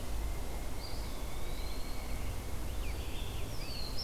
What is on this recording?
Pileated Woodpecker, Eastern Wood-Pewee, Scarlet Tanager, Red-eyed Vireo, Black-throated Blue Warbler